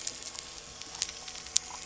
{"label": "anthrophony, boat engine", "recorder": "SoundTrap 300"}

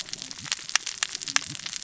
{"label": "biophony, cascading saw", "recorder": "SoundTrap 600 or HydroMoth"}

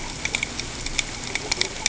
{"label": "ambient", "recorder": "HydroMoth"}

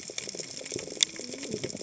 {"label": "biophony, cascading saw", "recorder": "HydroMoth"}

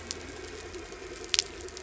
{"label": "anthrophony, boat engine", "recorder": "SoundTrap 300"}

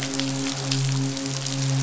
{"label": "biophony, midshipman", "recorder": "SoundTrap 500"}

